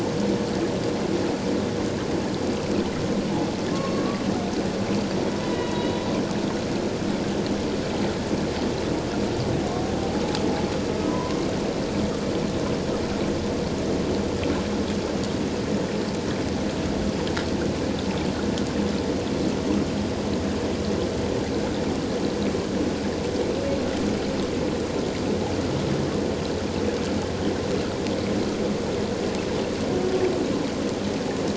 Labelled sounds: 3.7	4.0	humpback whale, 1.0 to 1.2 kHz
5.3	6.0	humpback whale, 0.94 to 4.0 kHz
11.1	11.4	humpback whale, 0.94 to 1.1 kHz

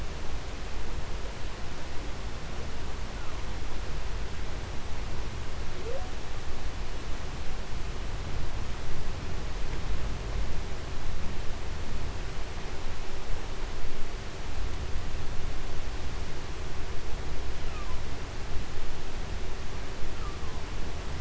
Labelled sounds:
2.1	4.1	humpback whale, 0.19 to 1.8 kHz
5.4	6.4	humpback whale, 0.15 to 1.3 kHz
17.3	18.2	humpback whale, 0.65 to 3.6 kHz
19.6	20.8	humpback whale, 0.39 to 1.8 kHz

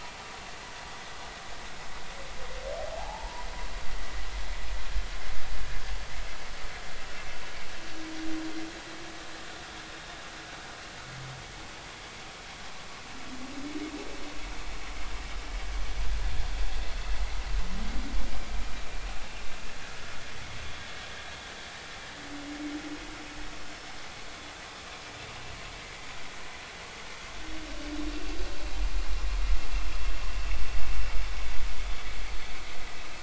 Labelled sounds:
2.9	3.5	humpback whale, 0.80 to 1.0 kHz
28.1	28.4	vessel noise, 2.7 to 2.8 kHz

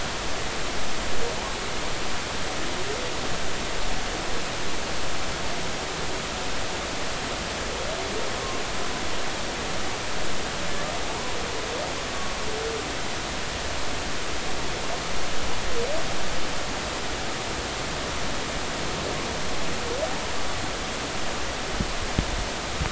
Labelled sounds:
11.1	11.4	humpback whale, 0.83 to 1.1 kHz

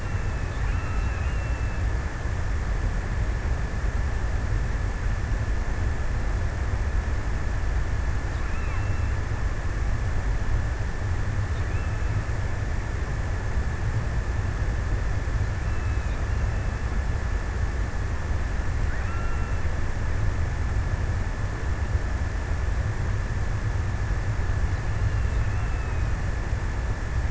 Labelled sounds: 0.0	2.7	killer whale, offshore, 1.2 to 3.1 kHz
7.6	9.9	killer whale, offshore, 0.91 to 3.1 kHz
10.8	12.6	killer whale, offshore, 0.70 to 3.0 kHz
15.1	17.1	killer whale, offshore, 0.70 to 3.1 kHz
18.2	20.4	killer whale, offshore, 0.83 to 3.1 kHz
24.6	27.2	killer whale, offshore, 0.75 to 3.1 kHz

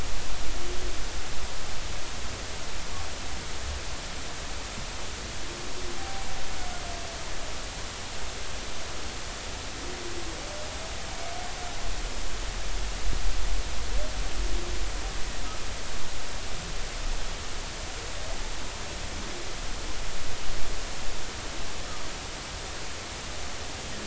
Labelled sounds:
6.0	6.3	humpback whale, 0.80 to 0.86 kHz

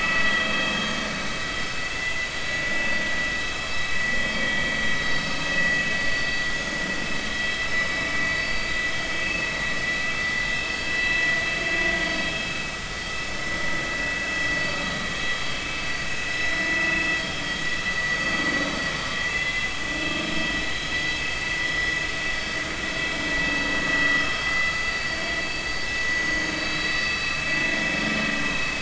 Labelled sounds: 0.2	0.9	vessel noise, 3.1 to 3.3 kHz
1.9	2.6	vessel noise, 2.0 to 4.0 kHz
5.0	5.3	vessel noise, 3.8 to 4.6 kHz
8.4	8.7	vessel noise, 4.6 to 4.7 kHz
16.3	16.6	vessel noise, 3.9 to 4.0 kHz
19.3	20.2	vessel noise, 2.0 to 3.4 kHz
24.3	25.2	vessel noise, 2.0 to 4.7 kHz
26.0	27.0	vessel noise, 3.8 to 6.6 kHz

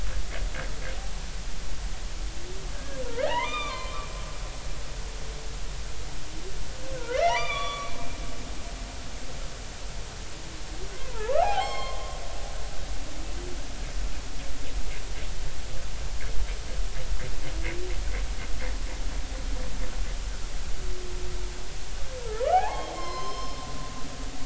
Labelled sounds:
2.7	4.1	humpback whale, 0.80 to 3.7 kHz
6.9	8.0	humpback whale, 0.80 to 6.0 kHz
10.9	12.2	humpback whale, 0.80 to 4.5 kHz
22.2	23.6	humpback whale, 0.80 to 5.4 kHz

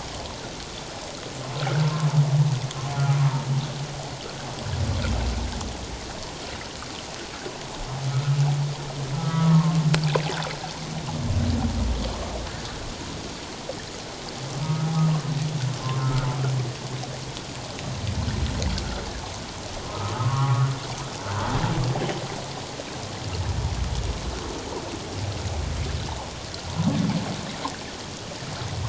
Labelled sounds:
1.6	1.8	humpback whale, 1.2 to 1.7 kHz
8.1	9.8	humpback whale, 1.0 to 1.5 kHz
14.6	14.9	humpback whale, 1.2 to 1.4 kHz
15.8	16.3	humpback whale, 1.0 to 1.5 kHz
19.9	20.7	humpback whale, 0.94 to 1.4 kHz

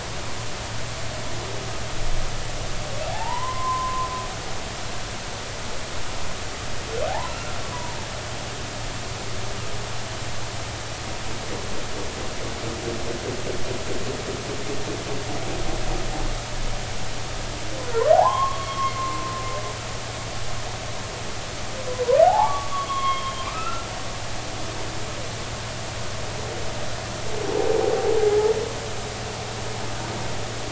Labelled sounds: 3.1	4.1	humpback whale, 0.80 to 1.2 kHz
7.1	8.0	humpback whale, 0.80 to 1.5 kHz
17.9	18.9	humpback whale, 0.80 to 3.3 kHz
22.2	23.8	humpback whale, 0.80 to 3.3 kHz
28.2	28.5	humpback whale, 0.80 to 0.90 kHz

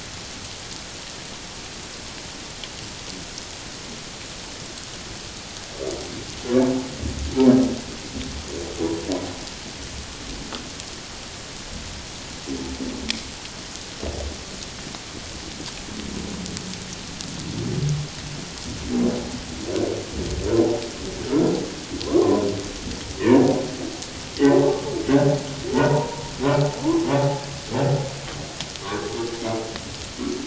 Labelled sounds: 22.0	22.5	humpback whale, 0.91 to 1.2 kHz
23.2	23.5	humpback whale, 1.7 to 1.9 kHz
25.7	26.2	humpback whale, 0.84 to 1.1 kHz
28.8	29.1	humpback whale, 0.94 to 1.2 kHz

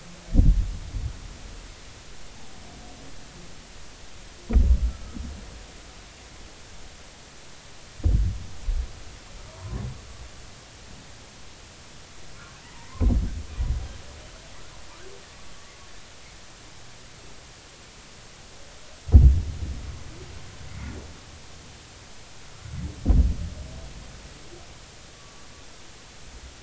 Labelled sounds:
9.5	9.8	humpback whale, 0.90 to 1.1 kHz
12.6	12.9	humpback whale, 0.86 to 2.1 kHz
15.3	15.5	humpback whale, 1.1 to 1.2 kHz

